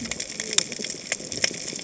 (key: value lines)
label: biophony, cascading saw
recorder: HydroMoth